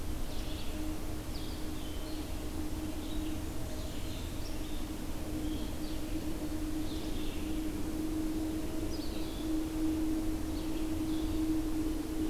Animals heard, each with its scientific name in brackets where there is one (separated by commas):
Red-eyed Vireo (Vireo olivaceus), Blackburnian Warbler (Setophaga fusca), Blue-headed Vireo (Vireo solitarius)